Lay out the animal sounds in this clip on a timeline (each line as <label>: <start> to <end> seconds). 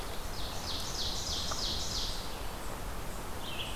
Ovenbird (Seiurus aurocapilla): 0.2 to 2.4 seconds
Red-eyed Vireo (Vireo olivaceus): 3.3 to 3.8 seconds